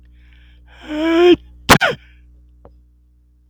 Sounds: Sneeze